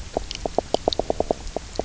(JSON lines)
{"label": "biophony, knock croak", "recorder": "SoundTrap 300"}